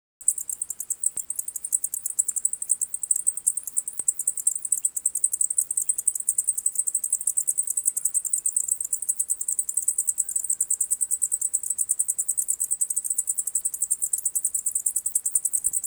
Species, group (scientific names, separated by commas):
Decticus albifrons, Orthoptera